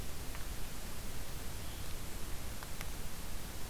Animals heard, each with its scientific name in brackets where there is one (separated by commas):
Blue-headed Vireo (Vireo solitarius)